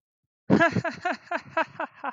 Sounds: Laughter